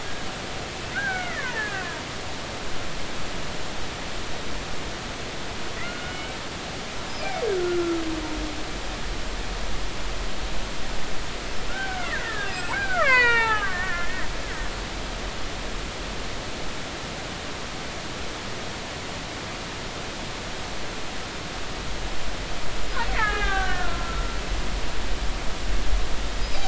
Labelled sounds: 0.9	1.9	killer whale, Bigg's (transient), 0.83 to 2.3 kHz
5.8	6.2	killer whale, Bigg's (transient), 1.3 to 1.5 kHz
7.2	8.0	killer whale, Bigg's (transient), 1.2 to 2.5 kHz
11.7	14.3	killer whale, Bigg's (transient), 0.80 to 4.9 kHz
23.1	24.4	killer whale, Bigg's (transient), 0.80 to 3.7 kHz

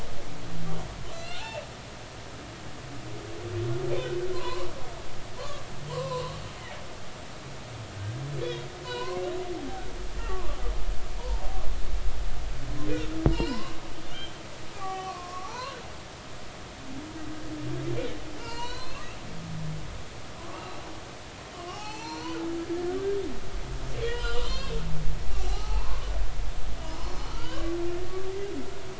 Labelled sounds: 1.1	1.6	humpback whale, 1.3 to 4.4 kHz
4.3	6.4	humpback whale, 0.90 to 4.2 kHz
8.4	9.3	humpback whale, 0.90 to 4.0 kHz
10.3	11.4	humpback whale, 0.83 to 1.2 kHz
13.3	14.3	humpback whale, 0.86 to 4.6 kHz
14.7	15.7	humpback whale, 0.80 to 1.7 kHz
18.4	19.0	humpback whale, 0.86 to 4.8 kHz
20.5	22.4	humpback whale, 0.80 to 4.6 kHz
22.9	23.2	humpback whale, 1.4 to 1.7 kHz
24.0	24.7	humpback whale, 0.96 to 4.9 kHz
25.4	26.1	humpback whale, 0.80 to 1.3 kHz
27.3	27.7	humpback whale, 1.2 to 4.8 kHz

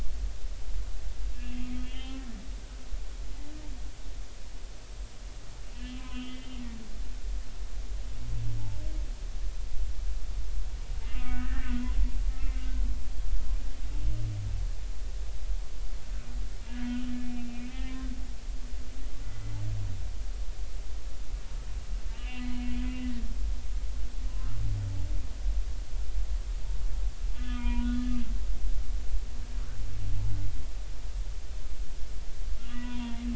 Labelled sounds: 1.3	2.2	humpback whale, 2.5 to 3.5 kHz
5.7	6.6	humpback whale, 1.2 to 3.4 kHz
11.1	11.8	humpback whale, 0.96 to 2.8 kHz
12.3	12.7	humpback whale, 2.0 to 2.2 kHz
17.3	18.0	humpback whale, 1.8 to 3.2 kHz
19.2	19.5	humpback whale, 2.0 to 2.1 kHz
22.1	22.7	humpback whale, 0.93 to 3.1 kHz
27.3	27.9	humpback whale, 0.90 to 3.2 kHz
32.6	33.2	humpback whale, 0.86 to 3.5 kHz

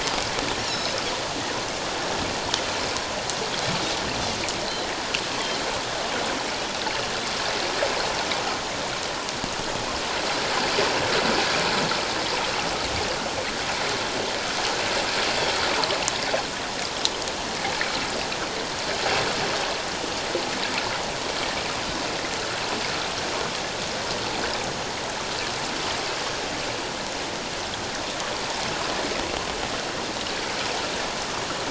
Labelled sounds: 0.6	1.0	Pacific white-sided dolphin, 3.7 to 7.1 kHz
15.7	16.0	water noise, 0.84 to 1.3 kHz

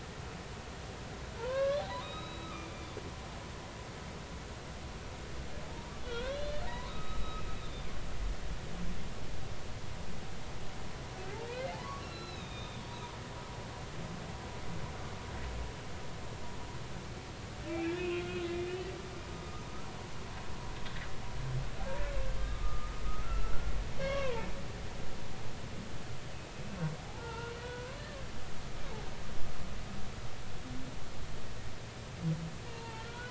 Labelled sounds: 1.4	2.9	humpback whale, 0.86 to 3.9 kHz
6.1	7.9	humpback whale, 0.90 to 4.2 kHz
11.5	12.8	humpback whale, 0.80 to 4.1 kHz
17.7	18.7	humpback whale, 1.4 to 3.6 kHz
19.3	19.7	humpback whale, 1.2 to 1.4 kHz
22.4	24.5	humpback whale, 0.83 to 5.6 kHz
27.0	27.9	humpback whale, 0.80 to 2.8 kHz
32.7	33.3	humpback whale, 0.83 to 1.6 kHz

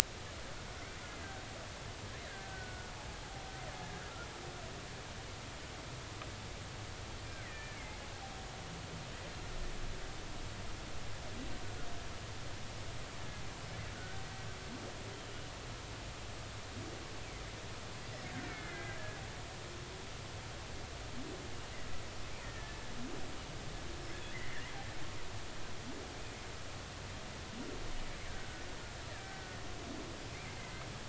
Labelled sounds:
2.2	2.9	killer whale, Bigg's (transient), 1.4 to 2.0 kHz
7.4	8.0	killer whale, Bigg's (transient), 1.7 to 2.5 kHz
14.0	14.2	killer whale, Bigg's (transient), 1.4 to 1.6 kHz
18.4	19.2	killer whale, Bigg's (transient), 1.5 to 2.4 kHz
22.4	22.8	killer whale, Bigg's (transient), 1.7 to 2.0 kHz
24.3	24.7	killer whale, Bigg's (transient), 1.7 to 2.1 kHz
29.1	29.5	killer whale, Bigg's (transient), 1.5 to 2.0 kHz
30.6	30.8	killer whale, Bigg's (transient), 2.0 to 2.1 kHz

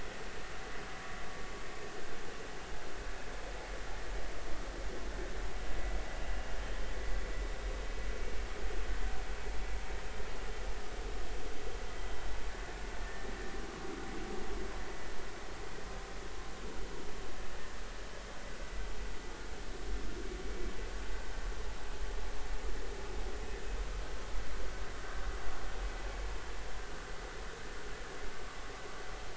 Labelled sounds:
13.0	13.3	vessel noise, 1.7 to 1.9 kHz

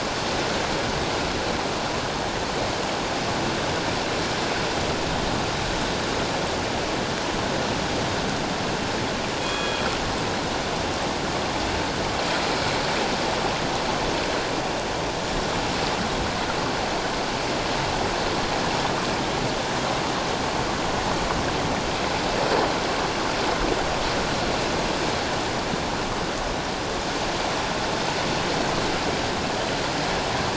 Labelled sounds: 9.4	9.9	killer whale, northern resident, G clan, 2.3 to 3.4 kHz

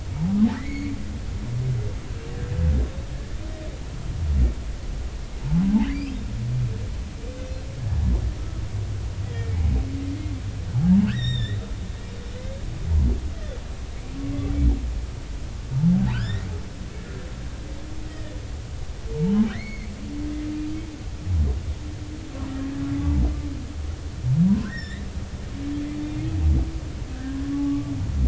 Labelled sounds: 0.6	0.9	humpback whale, 1.7 to 4.6 kHz
5.8	6.2	humpback whale, 1.7 to 5.4 kHz
11.1	11.6	humpback whale, 1.4 to 5.8 kHz
16.1	16.5	humpback whale, 1.2 to 5.6 kHz
18.0	18.4	humpback whale, 1.7 to 3.2 kHz
19.1	19.9	humpback whale, 0.80 to 4.5 kHz
23.0	23.2	humpback whale, 0.83 to 0.99 kHz
24.5	25.0	humpback whale, 0.93 to 5.7 kHz
26.0	26.3	humpback whale, 2.1 to 2.2 kHz
27.1	27.9	humpback whale, 0.80 to 1.9 kHz

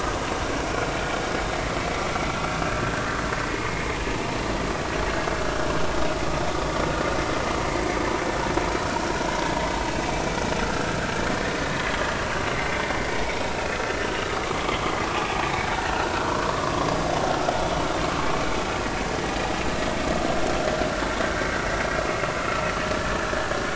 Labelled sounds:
3.5	3.9	vessel noise, 2.0 to 2.2 kHz
10.6	11.0	vessel noise, 1.3 to 1.7 kHz
12.5	12.8	vessel noise, 2.0 to 2.2 kHz
13.1	13.8	vessel noise, 2.2 to 2.7 kHz
14.7	14.9	vessel noise, 3.0 to 3.4 kHz
15.9	16.3	vessel noise, 1.3 to 1.6 kHz

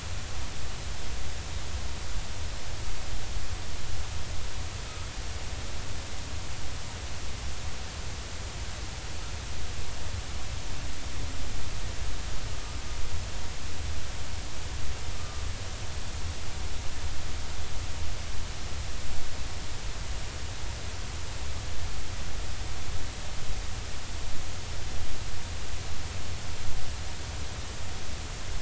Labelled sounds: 15.1	15.4	humpback whale, 1.2 to 1.3 kHz

